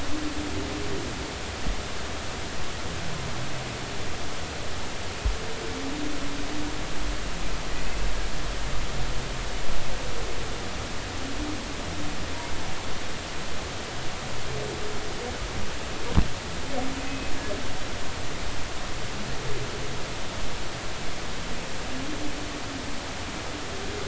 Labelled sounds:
17.1	17.3	humpback whale, 2.5 to 2.7 kHz

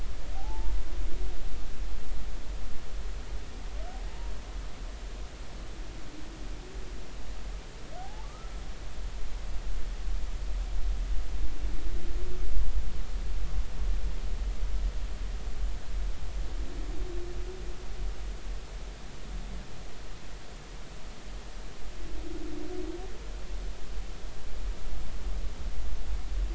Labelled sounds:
0.3	0.7	humpback whale, 0.80 to 0.96 kHz
4.1	4.3	humpback whale, 0.83 to 1.0 kHz
8.0	8.5	humpback whale, 0.80 to 1.4 kHz

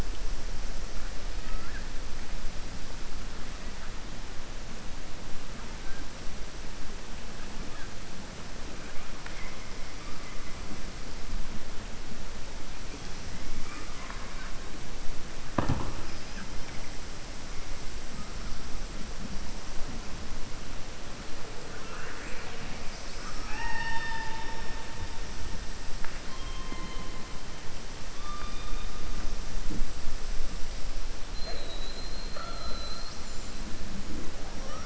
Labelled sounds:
1.3	1.9	killer whale, southern resident, 1.3 to 2.6 kHz
22.8	24.6	killer whale, southern resident, 0.85 to 6.2 kHz

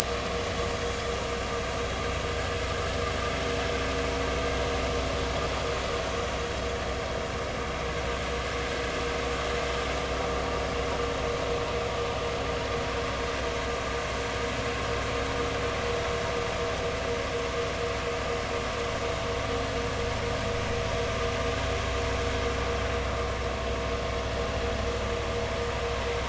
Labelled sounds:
0.0	0.4	vessel noise, 1.1 to 1.3 kHz

